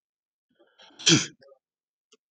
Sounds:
Sneeze